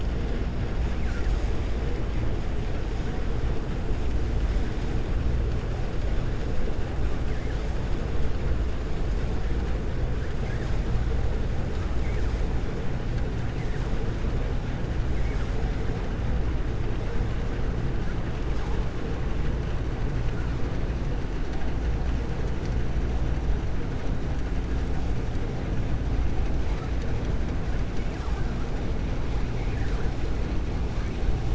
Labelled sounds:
28.0	28.5	vessel noise, 0.84 to 2.9 kHz

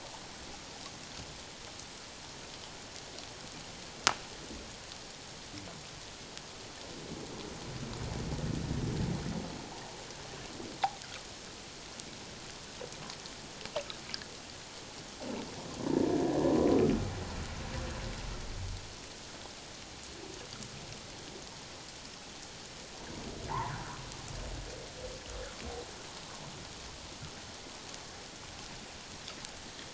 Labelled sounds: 23.5	23.7	humpback whale, 0.81 to 1.2 kHz

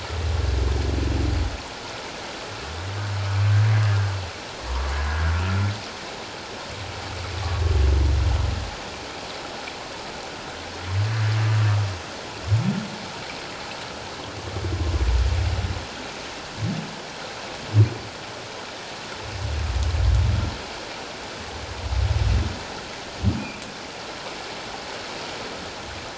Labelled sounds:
5.3	5.6	humpback whale, 1.3 to 1.4 kHz
23.4	23.6	humpback whale, 2.3 to 2.7 kHz

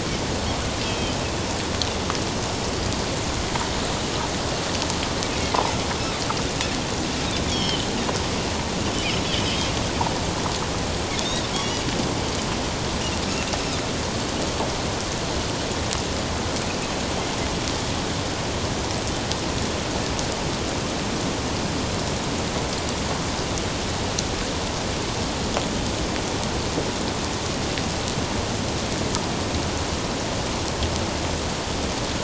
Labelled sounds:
7.5	7.9	Pacific white-sided dolphin, 2.9 to 5.6 kHz
9.5	9.7	Pacific white-sided dolphin, 2.9 to 3.3 kHz
11.2	11.5	Pacific white-sided dolphin, 3.4 to 3.9 kHz

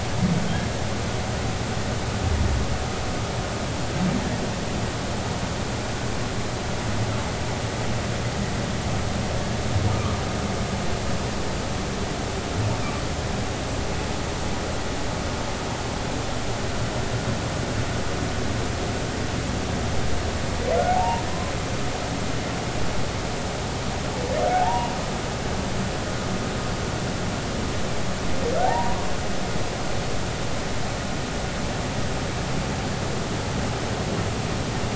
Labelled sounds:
20.9	21.2	humpback whale, 0.80 to 1.0 kHz
24.5	24.9	humpback whale, 0.80 to 2.9 kHz
28.6	29.1	humpback whale, 0.80 to 1.2 kHz

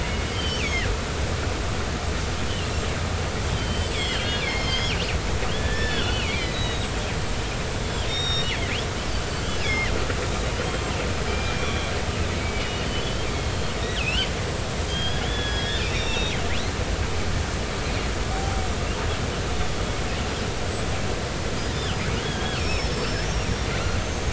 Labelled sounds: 0.3	0.9	killer whale, northern resident, 1.6 to 6.6 kHz
3.5	5.0	killer whale, northern resident, 1.6 to 8.0 kHz
5.5	8.9	killer whale, northern resident, 1.3 to 7.6 kHz
9.6	11.9	killer whale, northern resident, 1.8 to 8.0 kHz
12.3	14.3	killer whale, northern resident, 2.2 to 3.5 kHz
14.9	16.4	killer whale, northern resident, 1.6 to 5.9 kHz
18.3	18.6	killer whale, northern resident, 0.80 to 0.86 kHz
19.7	19.9	killer whale, northern resident, 3.3 to 3.4 kHz
21.6	24.3	killer whale, northern resident, 1.3 to 6.6 kHz

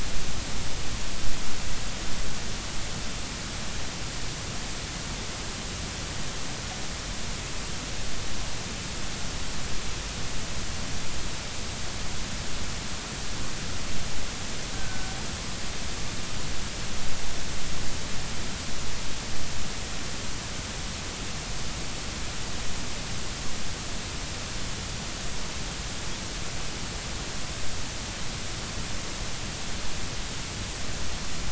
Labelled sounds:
14.7	15.1	killer whale, northern resident, G clan, 1.5 to 1.6 kHz

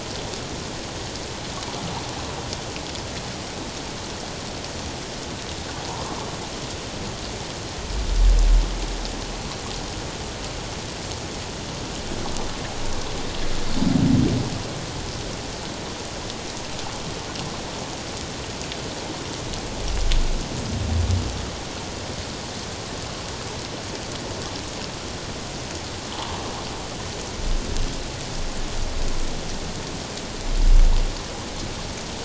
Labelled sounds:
5.9	6.2	water noise, 0.88 to 1.2 kHz

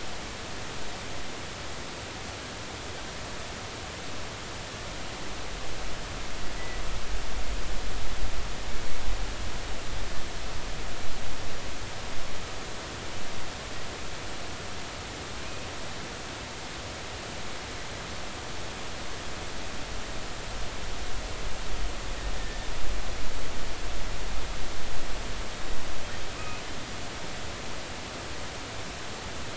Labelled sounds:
6.6	6.8	killer whale, offshore, 1.9 to 2.0 kHz
22.4	22.7	killer whale, offshore, 1.7 to 1.9 kHz
26.4	26.6	killer whale, offshore, 2.4 to 2.6 kHz

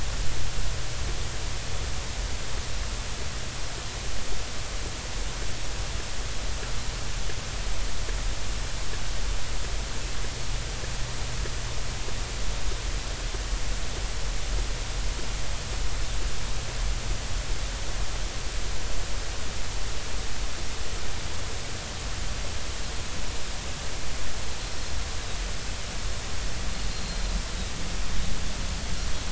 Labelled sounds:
26.9	27.2	Pacific white-sided dolphin, 4.1 to 4.3 kHz

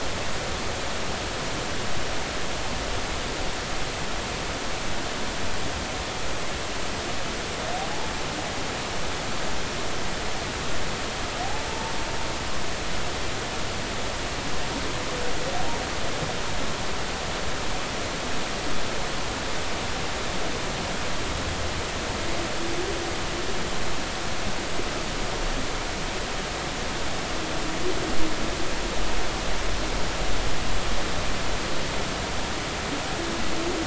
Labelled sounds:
11.7	11.9	humpback whale, 0.86 to 0.99 kHz

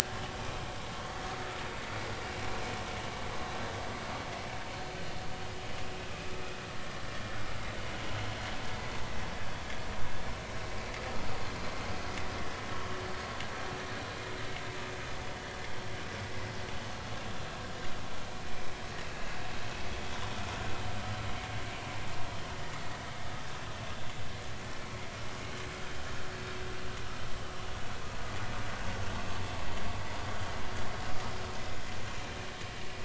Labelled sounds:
0.4	0.6	vessel noise, 2.4 to 2.6 kHz

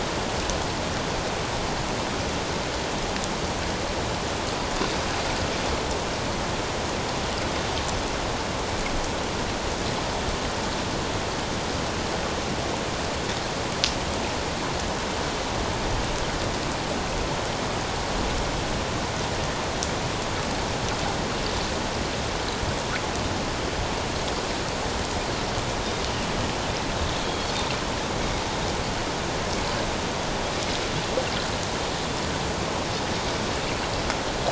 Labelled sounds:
27.2	27.5	Pacific white-sided dolphin, 3.2 to 3.4 kHz

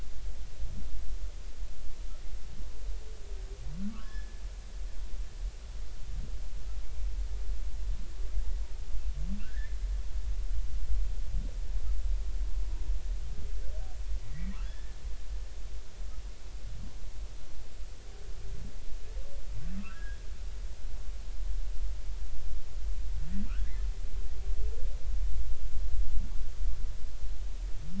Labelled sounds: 3.9	4.4	humpback whale, 1.0 to 1.8 kHz
9.4	9.8	humpback whale, 1.3 to 2.0 kHz
14.3	15.0	humpback whale, 1.5 to 2.1 kHz
19.8	20.2	humpback whale, 1.1 to 1.8 kHz
23.5	23.8	humpback whale, 1.1 to 2.1 kHz

